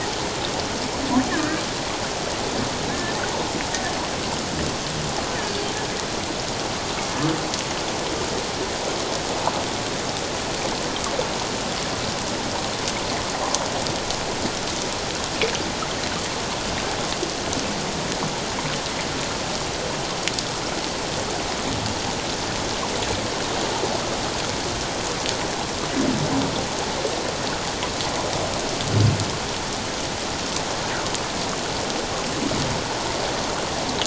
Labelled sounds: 2.9	3.2	humpback whale, 1.6 to 1.8 kHz

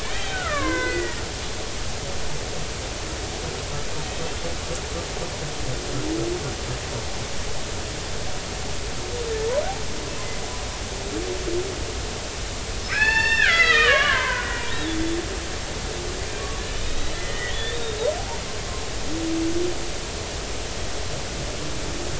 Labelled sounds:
0.0	1.2	killer whale, Bigg's (transient), 0.96 to 3.3 kHz
12.8	14.6	killer whale, Bigg's (transient), 0.83 to 5.5 kHz
16.8	17.8	killer whale, Bigg's (transient), 1.7 to 4.0 kHz

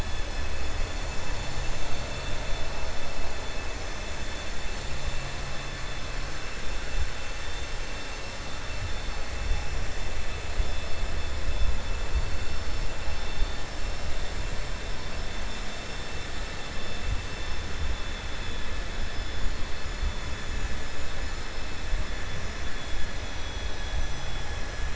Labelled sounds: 0.0	0.9	vessel noise, 1.7 to 3.5 kHz

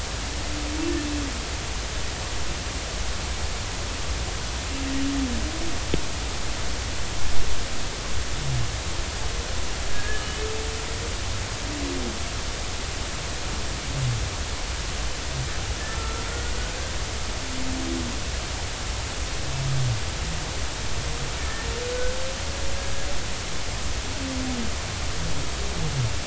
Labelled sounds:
9.9	10.4	humpback whale, 1.6 to 3.0 kHz
15.9	16.2	humpback whale, 1.3 to 1.4 kHz
21.4	21.7	humpback whale, 1.7 to 1.9 kHz

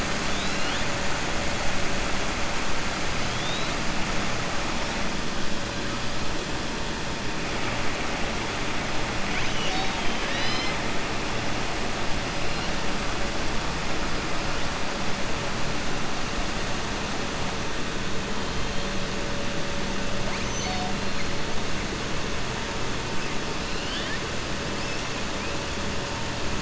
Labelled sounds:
9.2	10.8	killer whale, southern resident, 1.2 to 6.5 kHz

